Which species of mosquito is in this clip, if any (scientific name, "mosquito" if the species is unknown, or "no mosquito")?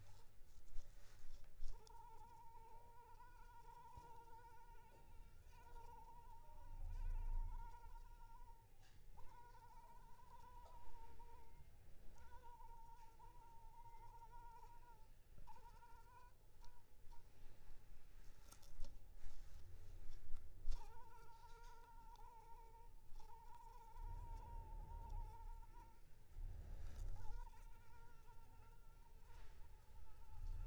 Anopheles arabiensis